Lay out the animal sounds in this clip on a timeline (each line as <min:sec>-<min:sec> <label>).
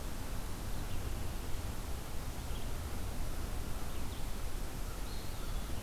0:05.0-0:05.8 Eastern Wood-Pewee (Contopus virens)